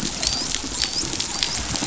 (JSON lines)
{"label": "biophony, dolphin", "recorder": "SoundTrap 500"}